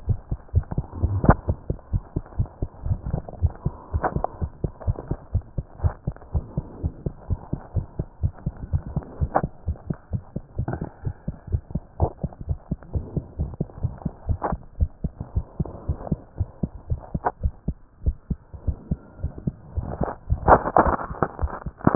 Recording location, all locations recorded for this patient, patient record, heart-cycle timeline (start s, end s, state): tricuspid valve (TV)
aortic valve (AV)+pulmonary valve (PV)+tricuspid valve (TV)+mitral valve (MV)
#Age: Child
#Sex: Male
#Height: 129.0 cm
#Weight: 21.0 kg
#Pregnancy status: False
#Murmur: Absent
#Murmur locations: nan
#Most audible location: nan
#Systolic murmur timing: nan
#Systolic murmur shape: nan
#Systolic murmur grading: nan
#Systolic murmur pitch: nan
#Systolic murmur quality: nan
#Diastolic murmur timing: nan
#Diastolic murmur shape: nan
#Diastolic murmur grading: nan
#Diastolic murmur pitch: nan
#Diastolic murmur quality: nan
#Outcome: Normal
#Campaign: 2015 screening campaign
0.00	5.33	unannotated
5.33	5.44	S1
5.44	5.54	systole
5.54	5.66	S2
5.66	5.82	diastole
5.82	5.94	S1
5.94	6.06	systole
6.06	6.16	S2
6.16	6.34	diastole
6.34	6.48	S1
6.48	6.56	systole
6.56	6.66	S2
6.66	6.82	diastole
6.82	6.94	S1
6.94	7.02	systole
7.02	7.14	S2
7.14	7.30	diastole
7.30	7.40	S1
7.40	7.52	systole
7.52	7.60	S2
7.60	7.74	diastole
7.74	7.86	S1
7.86	7.98	systole
7.98	8.08	S2
8.08	8.22	diastole
8.22	8.32	S1
8.32	8.42	systole
8.42	8.54	S2
8.54	8.72	diastole
8.72	8.84	S1
8.84	8.94	systole
8.94	9.04	S2
9.04	9.20	diastole
9.20	9.32	S1
9.32	9.42	systole
9.42	9.52	S2
9.52	9.68	diastole
9.68	9.78	S1
9.78	9.88	systole
9.88	9.98	S2
9.98	10.12	diastole
10.12	10.22	S1
10.22	10.32	systole
10.32	10.42	S2
10.42	10.58	diastole
10.58	10.66	S1
10.66	10.78	systole
10.78	10.88	S2
10.88	11.04	diastole
11.04	11.14	S1
11.14	11.24	systole
11.24	11.34	S2
11.34	11.50	diastole
11.50	11.64	S1
11.64	11.74	systole
11.74	11.82	S2
11.82	11.98	diastole
11.98	12.12	S1
12.12	12.22	systole
12.22	12.32	S2
12.32	12.48	diastole
12.48	12.60	S1
12.60	12.70	systole
12.70	12.78	S2
12.78	12.94	diastole
12.94	13.06	S1
13.06	13.14	systole
13.14	13.24	S2
13.24	13.38	diastole
13.38	13.50	S1
13.50	13.58	systole
13.58	13.68	S2
13.68	13.82	diastole
13.82	13.96	S1
13.96	14.04	systole
14.04	14.14	S2
14.14	14.28	diastole
14.28	14.40	S1
14.40	14.50	systole
14.50	14.60	S2
14.60	14.74	diastole
14.74	14.88	S1
14.88	15.00	systole
15.00	15.12	S2
15.12	15.34	diastole
15.34	15.46	S1
15.46	15.56	systole
15.56	15.70	S2
15.70	15.86	diastole
15.86	15.98	S1
15.98	16.08	systole
16.08	16.20	S2
16.20	16.38	diastole
16.38	16.48	S1
16.48	16.62	systole
16.62	16.70	S2
16.70	16.88	diastole
16.88	17.02	S1
17.02	17.12	systole
17.12	17.22	S2
17.22	17.42	diastole
17.42	17.56	S1
17.56	17.68	systole
17.68	17.78	S2
17.78	18.00	diastole
18.00	18.14	S1
18.14	18.26	systole
18.26	18.38	S2
18.38	18.60	diastole
18.60	18.76	S1
18.76	18.90	systole
18.90	19.02	S2
19.02	19.22	diastole
19.22	19.32	S1
19.32	19.44	systole
19.44	19.54	S2
19.54	21.95	unannotated